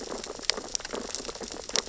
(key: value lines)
label: biophony, sea urchins (Echinidae)
recorder: SoundTrap 600 or HydroMoth